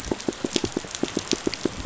{"label": "biophony, pulse", "recorder": "SoundTrap 500"}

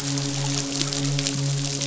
{"label": "biophony, midshipman", "recorder": "SoundTrap 500"}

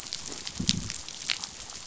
{"label": "biophony, growl", "recorder": "SoundTrap 500"}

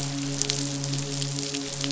{"label": "biophony, midshipman", "recorder": "SoundTrap 500"}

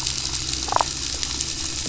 {"label": "biophony, damselfish", "recorder": "SoundTrap 500"}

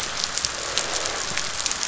{"label": "biophony, croak", "recorder": "SoundTrap 500"}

